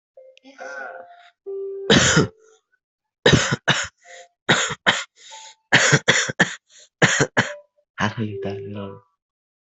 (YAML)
expert_labels:
- quality: ok
  cough_type: dry
  dyspnea: false
  wheezing: false
  stridor: false
  choking: false
  congestion: false
  nothing: true
  diagnosis: lower respiratory tract infection
  severity: mild
gender: female
respiratory_condition: false
fever_muscle_pain: false
status: COVID-19